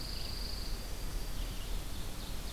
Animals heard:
Yellow-rumped Warbler (Setophaga coronata), Ovenbird (Seiurus aurocapilla), Pine Warbler (Setophaga pinus), Red-eyed Vireo (Vireo olivaceus)

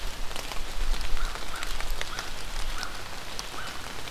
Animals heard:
American Crow (Corvus brachyrhynchos)

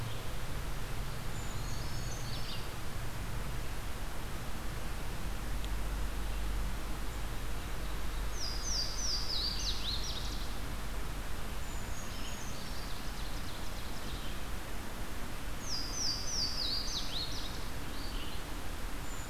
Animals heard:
Ovenbird (Seiurus aurocapilla), Eastern Wood-Pewee (Contopus virens), Brown Creeper (Certhia americana), Red-eyed Vireo (Vireo olivaceus), Louisiana Waterthrush (Parkesia motacilla)

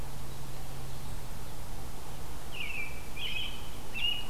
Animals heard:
American Robin (Turdus migratorius)

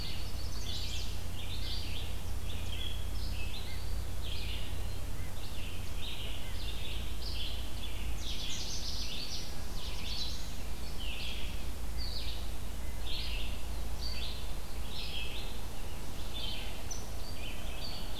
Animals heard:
Chestnut-sided Warbler (Setophaga pensylvanica), Red-eyed Vireo (Vireo olivaceus), Black-throated Blue Warbler (Setophaga caerulescens), Red-breasted Nuthatch (Sitta canadensis), Canada Warbler (Cardellina canadensis)

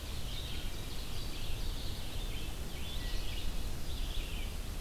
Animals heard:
Ovenbird (Seiurus aurocapilla), Red-eyed Vireo (Vireo olivaceus), Wood Thrush (Hylocichla mustelina)

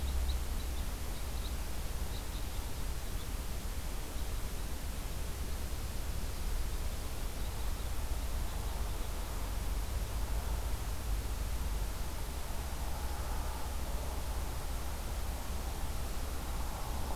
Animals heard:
Red Crossbill (Loxia curvirostra)

